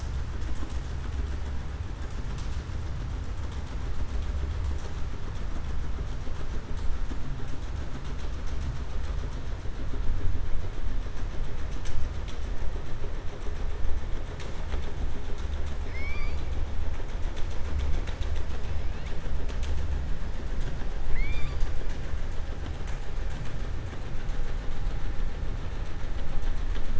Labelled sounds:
15.8	16.4	killer whale, southern resident, 1.1 to 5.3 kHz
21.0	21.7	killer whale, southern resident, 1.2 to 7.7 kHz

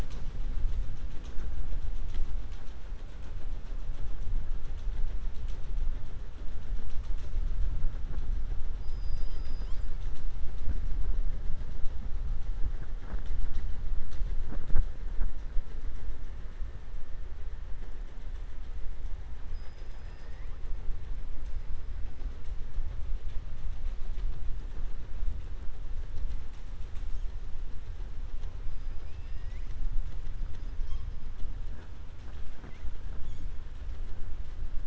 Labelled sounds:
20.0	20.6	killer whale, southern resident, 1.0 to 2.8 kHz
29.0	29.8	killer whale, southern resident, 1.8 to 7.2 kHz

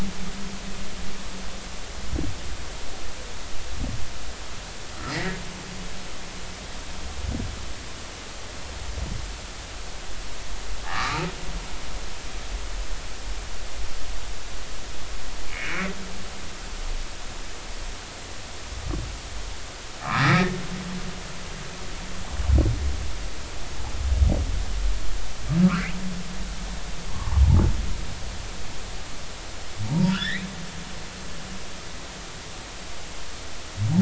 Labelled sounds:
5.0	5.4	humpback whale, 1.6 to 2.1 kHz
10.8	11.2	humpback whale, 1.1 to 1.4 kHz
15.5	15.9	humpback whale, 2.1 to 2.5 kHz
20.0	20.6	humpback whale, 0.99 to 2.1 kHz
25.6	25.9	humpback whale, 1.0 to 1.8 kHz
28.1	28.4	humpback whale, 0.83 to 1.2 kHz
29.8	30.4	humpback whale, 0.86 to 5.0 kHz
31.1	31.5	humpback whale, 1.3 to 2.6 kHz

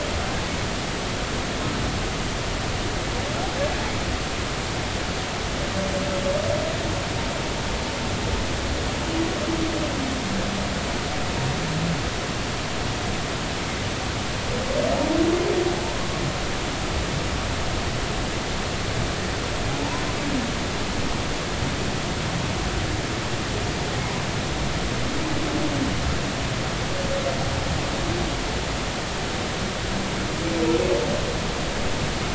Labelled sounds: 19.7	20.0	humpback whale, 0.80 to 1.1 kHz

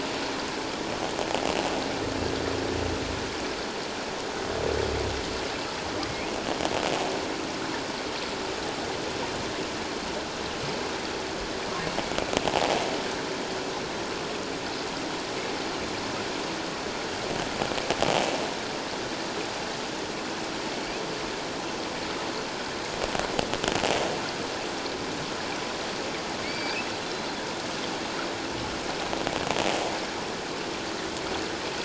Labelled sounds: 20.7	21.0	humpback whale, 2.2 to 2.7 kHz
26.4	26.9	humpback whale, 2.1 to 4.8 kHz

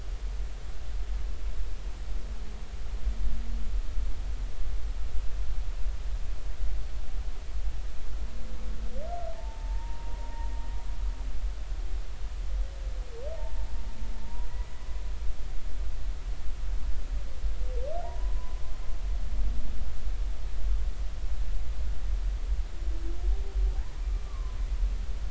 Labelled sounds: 9.3	10.5	humpback whale, 0.80 to 0.99 kHz
14.2	14.5	humpback whale, 0.86 to 1.0 kHz
18.0	18.6	humpback whale, 0.83 to 1.1 kHz
23.7	23.9	humpback whale, 0.80 to 1.1 kHz
24.2	24.6	humpback whale, 0.96 to 1.2 kHz

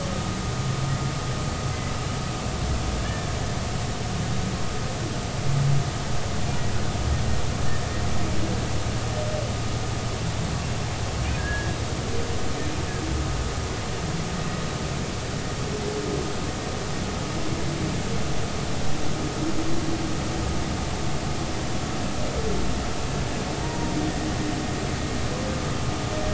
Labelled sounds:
3.0	3.3	humpback whale, 1.6 to 1.9 kHz
11.4	11.8	humpback whale, 1.6 to 1.8 kHz
23.6	23.9	humpback whale, 0.90 to 0.99 kHz

